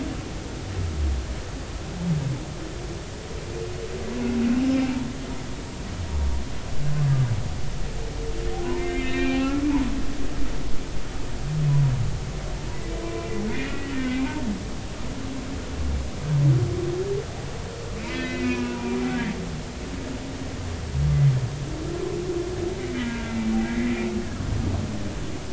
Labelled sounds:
8.7	9.6	humpback whale, 0.80 to 4.0 kHz
13.1	14.4	humpback whale, 0.80 to 2.6 kHz
18.0	19.4	humpback whale, 0.83 to 4.9 kHz
23.0	23.9	humpback whale, 1.5 to 2.1 kHz

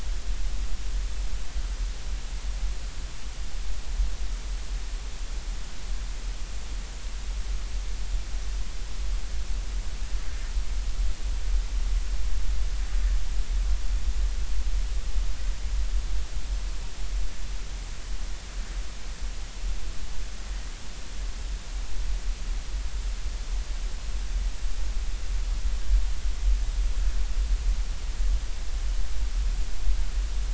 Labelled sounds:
10.3	10.5	vessel noise, 1.7 to 1.9 kHz

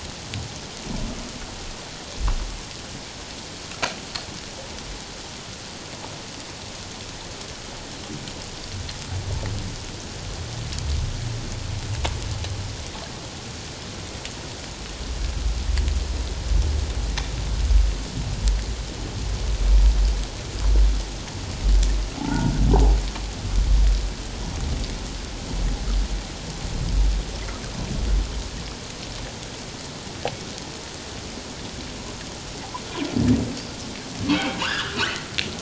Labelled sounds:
22.2	22.5	humpback whale, 0.78 to 1.5 kHz
34.3	35.2	humpback whale, 0.88 to 3.4 kHz

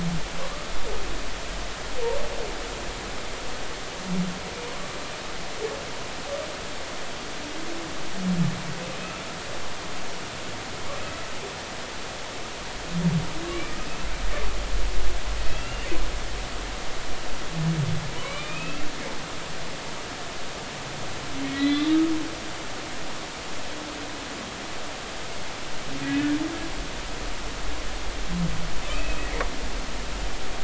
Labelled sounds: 13.4	13.9	humpback whale, 1.1 to 4.1 kHz
15.4	15.9	humpback whale, 2.5 to 2.9 kHz
18.2	18.9	humpback whale, 0.96 to 2.8 kHz
21.5	21.9	humpback whale, 1.9 to 4.1 kHz
26.0	26.4	humpback whale, 1.6 to 1.8 kHz
28.9	29.5	humpback whale, 1.8 to 2.7 kHz

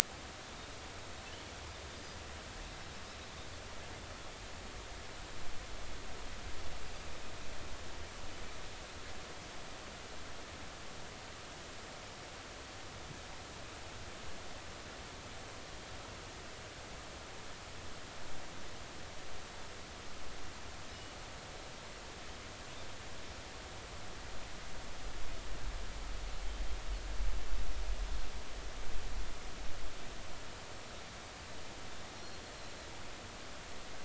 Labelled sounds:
1.9	2.2	Pacific white-sided dolphin, 4.7 to 5.0 kHz
32.2	32.4	Pacific white-sided dolphin, 4.1 to 4.4 kHz

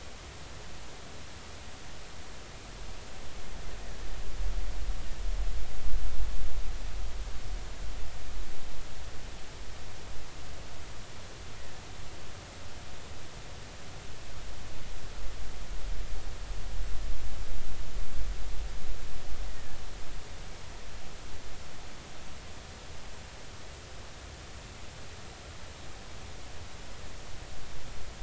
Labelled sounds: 11.6	11.8	killer whale, 1.7 to 2.0 kHz
19.5	19.8	killer whale, 1.7 to 2.0 kHz

